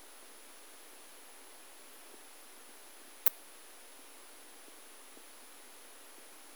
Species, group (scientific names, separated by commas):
Poecilimon ornatus, Orthoptera